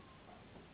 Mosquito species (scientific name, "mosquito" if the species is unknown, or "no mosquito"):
Anopheles gambiae s.s.